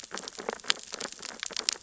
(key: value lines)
label: biophony, sea urchins (Echinidae)
recorder: SoundTrap 600 or HydroMoth